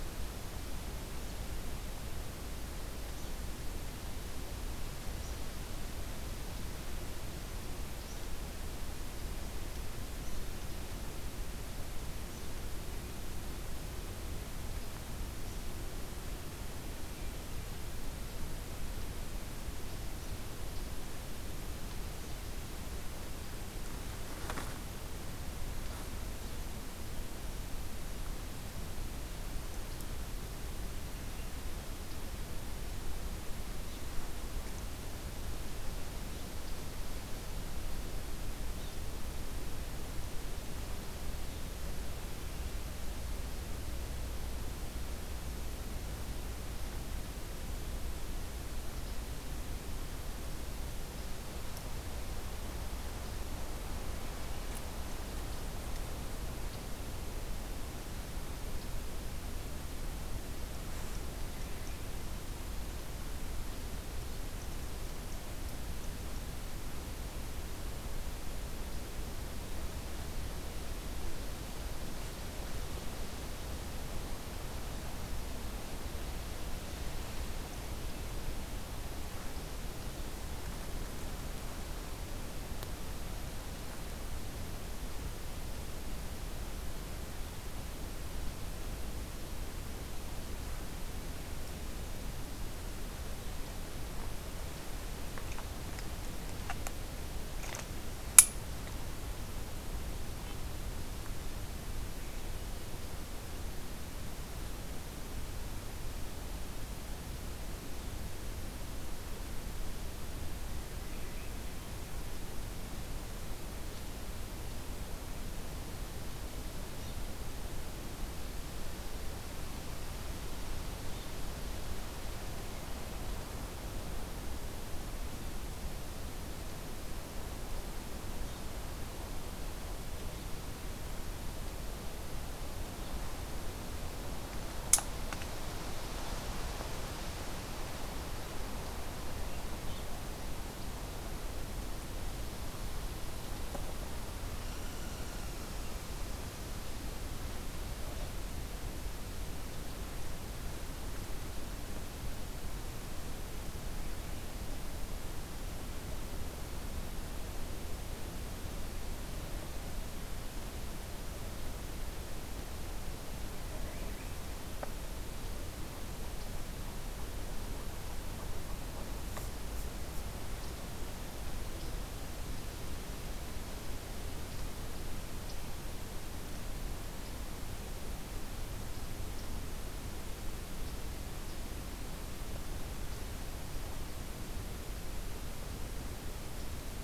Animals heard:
forest ambience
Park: Hubbard Brook Experimental Forest